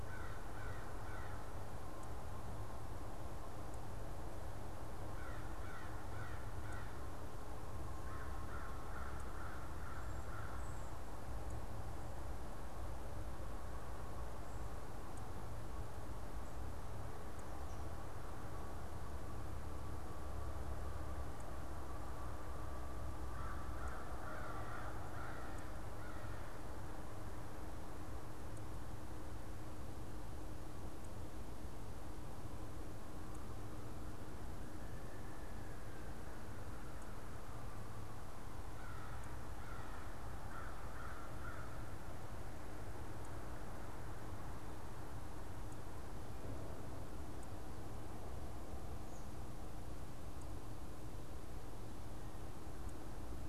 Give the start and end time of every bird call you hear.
0.0s-1.6s: American Crow (Corvus brachyrhynchos)
5.0s-11.0s: American Crow (Corvus brachyrhynchos)
23.2s-26.7s: American Crow (Corvus brachyrhynchos)
38.6s-41.8s: American Crow (Corvus brachyrhynchos)

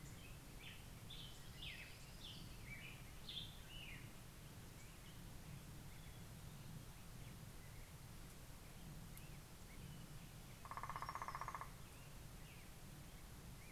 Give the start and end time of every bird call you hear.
0.0s-4.6s: Black-headed Grosbeak (Pheucticus melanocephalus)
1.0s-2.7s: Orange-crowned Warbler (Leiothlypis celata)
7.3s-13.7s: Black-headed Grosbeak (Pheucticus melanocephalus)
10.1s-12.2s: Hermit Warbler (Setophaga occidentalis)
10.6s-12.5s: Northern Flicker (Colaptes auratus)

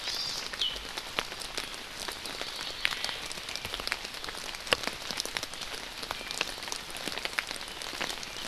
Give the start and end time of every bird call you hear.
0.1s-0.5s: Hawaii Amakihi (Chlorodrepanis virens)
2.3s-3.2s: Hawaii Creeper (Loxops mana)
2.9s-3.2s: Omao (Myadestes obscurus)
6.2s-6.4s: Iiwi (Drepanis coccinea)

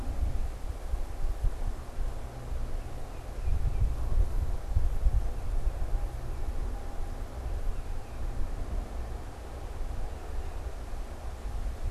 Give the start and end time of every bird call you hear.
2.6s-11.9s: Tufted Titmouse (Baeolophus bicolor)

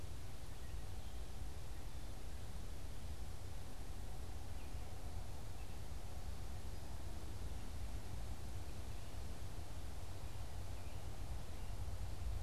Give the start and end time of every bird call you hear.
0.0s-11.4s: unidentified bird

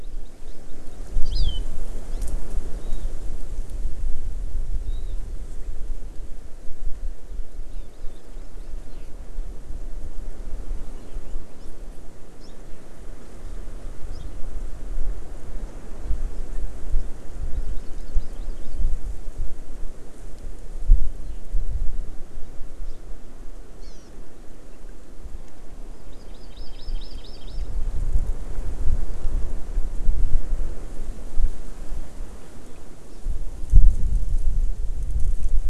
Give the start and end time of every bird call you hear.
0.0s-1.7s: Hawaii Amakihi (Chlorodrepanis virens)
2.7s-3.1s: Warbling White-eye (Zosterops japonicus)
4.8s-5.2s: Warbling White-eye (Zosterops japonicus)
7.7s-9.2s: Hawaii Amakihi (Chlorodrepanis virens)
11.5s-11.7s: Hawaii Amakihi (Chlorodrepanis virens)
12.4s-12.6s: Hawaii Amakihi (Chlorodrepanis virens)
14.1s-14.3s: Hawaii Amakihi (Chlorodrepanis virens)
17.5s-18.8s: Hawaii Amakihi (Chlorodrepanis virens)
23.8s-24.1s: Hawaii Amakihi (Chlorodrepanis virens)
25.9s-27.6s: Hawaii Amakihi (Chlorodrepanis virens)

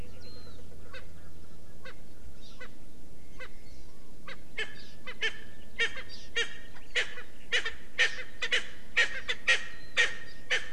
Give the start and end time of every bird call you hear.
0.2s-0.5s: Warbling White-eye (Zosterops japonicus)
0.9s-1.0s: Erckel's Francolin (Pternistis erckelii)
1.8s-1.9s: Erckel's Francolin (Pternistis erckelii)
2.5s-2.6s: Erckel's Francolin (Pternistis erckelii)
3.3s-3.4s: Erckel's Francolin (Pternistis erckelii)
4.2s-4.6s: Erckel's Francolin (Pternistis erckelii)
5.0s-5.3s: Erckel's Francolin (Pternistis erckelii)
5.7s-6.0s: Erckel's Francolin (Pternistis erckelii)
6.3s-6.4s: Erckel's Francolin (Pternistis erckelii)
6.9s-7.2s: Erckel's Francolin (Pternistis erckelii)
7.5s-8.2s: Erckel's Francolin (Pternistis erckelii)
8.5s-8.6s: Erckel's Francolin (Pternistis erckelii)
8.9s-9.6s: Erckel's Francolin (Pternistis erckelii)
9.9s-10.1s: Erckel's Francolin (Pternistis erckelii)
10.4s-10.6s: Erckel's Francolin (Pternistis erckelii)

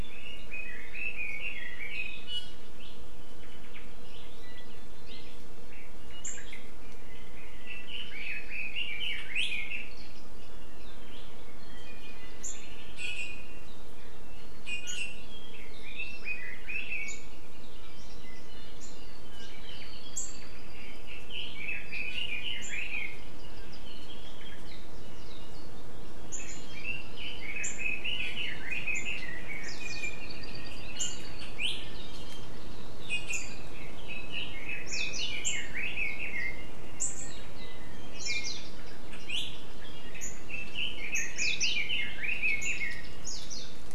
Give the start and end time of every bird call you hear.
0.0s-2.3s: Red-billed Leiothrix (Leiothrix lutea)
2.2s-2.7s: Iiwi (Drepanis coccinea)
3.4s-3.8s: Omao (Myadestes obscurus)
6.2s-6.7s: Omao (Myadestes obscurus)
7.6s-9.9s: Red-billed Leiothrix (Leiothrix lutea)
13.0s-13.7s: Iiwi (Drepanis coccinea)
14.6s-15.3s: Iiwi (Drepanis coccinea)
15.4s-17.3s: Red-billed Leiothrix (Leiothrix lutea)
20.7s-23.2s: Red-billed Leiothrix (Leiothrix lutea)
23.4s-23.8s: Warbling White-eye (Zosterops japonicus)
26.3s-29.7s: Red-billed Leiothrix (Leiothrix lutea)
29.8s-30.2s: Iiwi (Drepanis coccinea)
30.2s-31.5s: Apapane (Himatione sanguinea)
33.1s-33.7s: Iiwi (Drepanis coccinea)
34.1s-36.8s: Red-billed Leiothrix (Leiothrix lutea)
34.9s-35.3s: Warbling White-eye (Zosterops japonicus)
38.1s-38.6s: Iiwi (Drepanis coccinea)
38.1s-38.6s: Warbling White-eye (Zosterops japonicus)
40.5s-43.1s: Red-billed Leiothrix (Leiothrix lutea)
41.4s-41.8s: Warbling White-eye (Zosterops japonicus)
43.2s-43.7s: Warbling White-eye (Zosterops japonicus)

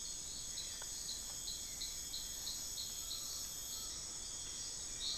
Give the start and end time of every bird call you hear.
0.0s-3.8s: Hauxwell's Thrush (Turdus hauxwelli)
0.0s-5.2s: Buckley's Forest-Falcon (Micrastur buckleyi)
4.2s-5.2s: Rufous-fronted Antthrush (Formicarius rufifrons)

